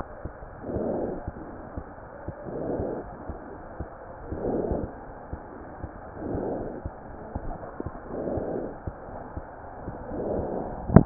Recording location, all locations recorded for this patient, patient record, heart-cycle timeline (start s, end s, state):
aortic valve (AV)
aortic valve (AV)+pulmonary valve (PV)+tricuspid valve (TV)+mitral valve (MV)
#Age: Child
#Sex: Female
#Height: 115.0 cm
#Weight: 23.1 kg
#Pregnancy status: False
#Murmur: Absent
#Murmur locations: nan
#Most audible location: nan
#Systolic murmur timing: nan
#Systolic murmur shape: nan
#Systolic murmur grading: nan
#Systolic murmur pitch: nan
#Systolic murmur quality: nan
#Diastolic murmur timing: nan
#Diastolic murmur shape: nan
#Diastolic murmur grading: nan
#Diastolic murmur pitch: nan
#Diastolic murmur quality: nan
#Outcome: Normal
#Campaign: 2015 screening campaign
0.00	1.53	unannotated
1.53	1.66	S1
1.66	1.75	systole
1.75	1.83	S2
1.83	2.04	diastole
2.04	2.17	S1
2.17	2.25	systole
2.25	2.34	S2
2.34	2.52	diastole
2.52	2.62	S1
2.62	2.76	systole
2.76	2.84	S2
2.84	3.06	diastole
3.06	3.15	S1
3.15	3.25	systole
3.25	3.37	S2
3.37	3.57	diastole
3.57	3.70	S1
3.70	3.77	systole
3.77	3.85	S2
3.85	3.99	diastole
3.99	4.13	S1
4.13	4.26	systole
4.26	4.37	S2
4.37	5.06	unannotated
5.06	5.17	S1
5.17	5.29	systole
5.29	5.38	S2
5.38	5.56	diastole
5.56	5.67	S1
5.67	5.80	systole
5.80	5.92	S2
5.92	11.06	unannotated